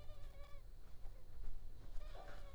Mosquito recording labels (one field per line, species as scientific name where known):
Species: Culex pipiens complex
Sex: female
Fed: unfed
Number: one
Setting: cup